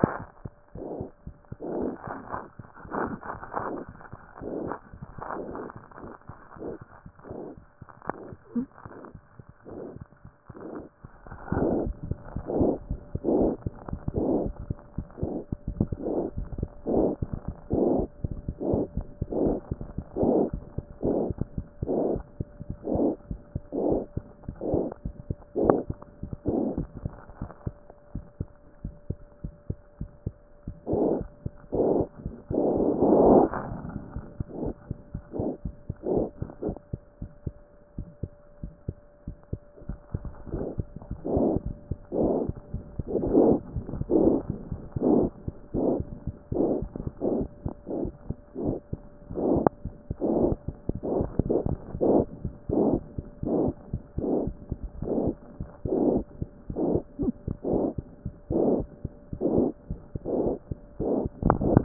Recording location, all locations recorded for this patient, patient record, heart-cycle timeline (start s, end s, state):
mitral valve (MV)
pulmonary valve (PV)+mitral valve (MV)
#Age: Child
#Sex: Male
#Height: nan
#Weight: nan
#Pregnancy status: False
#Murmur: Present
#Murmur locations: mitral valve (MV)
#Most audible location: mitral valve (MV)
#Systolic murmur timing: Early-systolic
#Systolic murmur shape: Plateau
#Systolic murmur grading: I/VI
#Systolic murmur pitch: Low
#Systolic murmur quality: Harsh
#Diastolic murmur timing: nan
#Diastolic murmur shape: nan
#Diastolic murmur grading: nan
#Diastolic murmur pitch: nan
#Diastolic murmur quality: nan
#Outcome: Abnormal
#Campaign: 2014 screening campaign
0.00	26.67	unannotated
26.67	26.78	diastole
26.78	26.86	S1
26.86	27.04	systole
27.04	27.10	S2
27.10	27.42	diastole
27.42	27.50	S1
27.50	27.66	systole
27.66	27.74	S2
27.74	28.14	diastole
28.14	28.24	S1
28.24	28.40	systole
28.40	28.48	S2
28.48	28.84	diastole
28.84	28.94	S1
28.94	29.08	systole
29.08	29.18	S2
29.18	29.44	diastole
29.44	29.52	S1
29.52	29.68	systole
29.68	29.78	S2
29.78	30.00	diastole
30.00	30.08	S1
30.08	30.26	systole
30.26	30.34	S2
30.34	30.68	diastole
30.68	61.84	unannotated